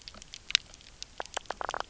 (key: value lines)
label: biophony, knock croak
recorder: SoundTrap 300